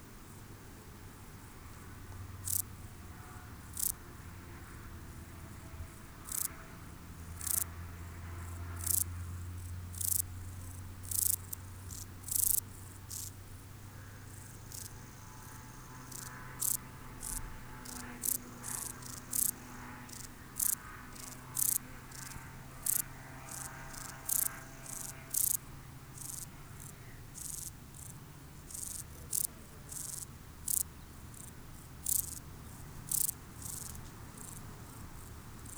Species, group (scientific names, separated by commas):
Euchorthippus declivus, Orthoptera